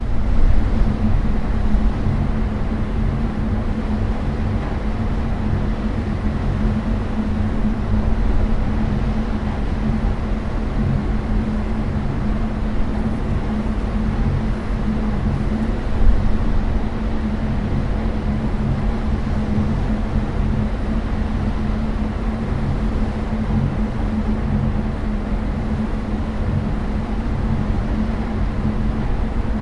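An engine running on a boat with waves, wind, and water sounds. 0:00.0 - 0:29.6

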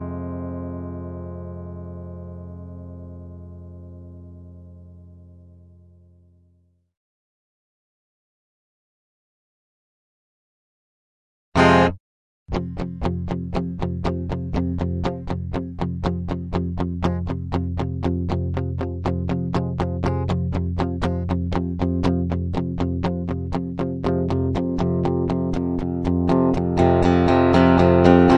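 A soft, gentle chord resonates. 0:00.1 - 0:05.8
A steady rhythm with fluctuating tones synchronized with an electric guitar. 0:11.5 - 0:28.4

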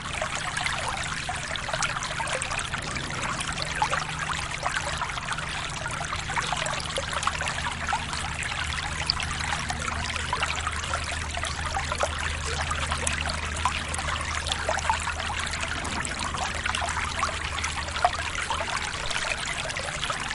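A constant stream of water murmurs. 0:00.0 - 0:20.3

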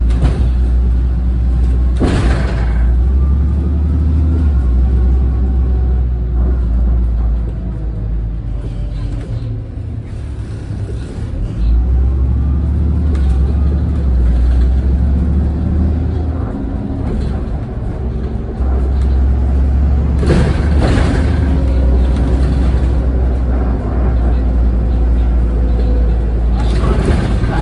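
A heavy vehicle slowly accelerates and decelerates repeatedly while changing gears. 0:00.0 - 0:27.6
A heavy vehicle passes over a pothole. 0:01.9 - 0:02.9
A heavy vehicle passing over potholes. 0:20.2 - 0:21.4
Someone is speaking. 0:26.3 - 0:27.6

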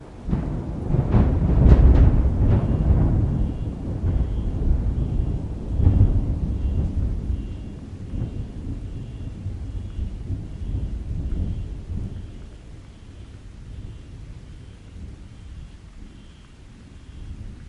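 Thunder roars in the distance. 0:00.2 - 0:06.5
An alarm siren is wailing quietly in the background. 0:02.4 - 0:17.7

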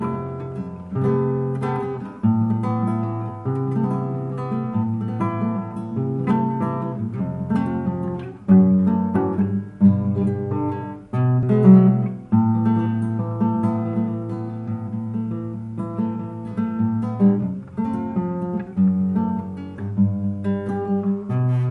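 An acoustic guitar is playing continuously. 0:00.0 - 0:21.7

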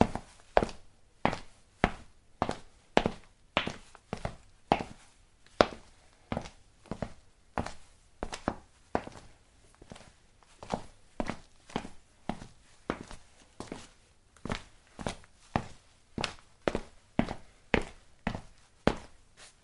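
Footsteps indoors with shoes, constant sound. 0:00.0 - 0:19.6

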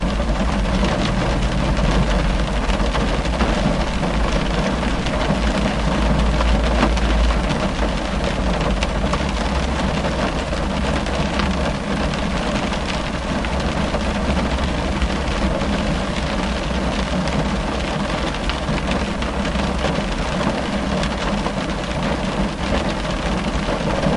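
Rain is pouring continuously on a car. 0:00.0 - 0:24.2

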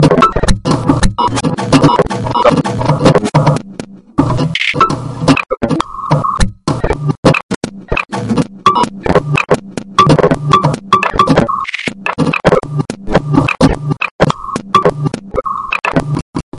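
Repeated irregular sharp, short electric noises with brief pauses between them. 0:00.0 - 0:16.6

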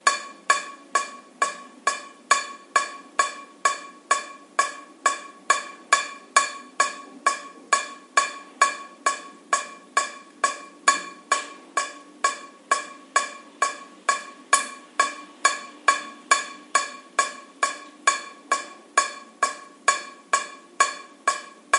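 Water drips continuously, hitting a metallic surface and making a loud, sharp tapping sound. 0:00.0 - 0:21.8

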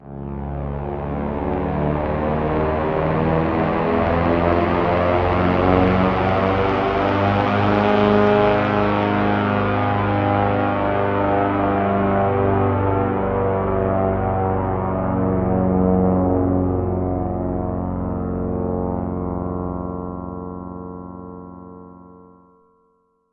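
The pitch and volume of the sound change, indicating the plane is flying away. 0:00.0 - 0:23.3
The sound of an old airplane propeller. 0:00.0 - 0:23.3

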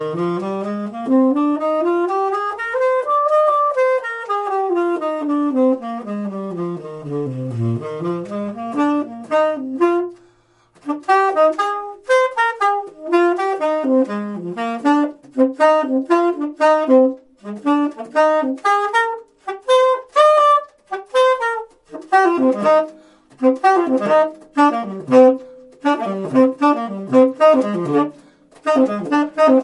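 A saxophone is playing. 0:00.0 - 0:10.2
A saxophone is playing. 0:10.8 - 0:29.6

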